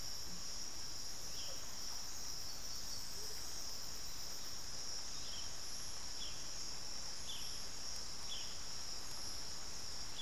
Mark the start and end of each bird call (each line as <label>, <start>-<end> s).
Russet-backed Oropendola (Psarocolius angustifrons), 1.3-2.3 s
Amazonian Motmot (Momotus momota), 3.1-3.4 s